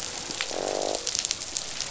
{"label": "biophony, croak", "recorder": "SoundTrap 500"}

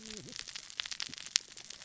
{"label": "biophony, cascading saw", "recorder": "SoundTrap 600 or HydroMoth"}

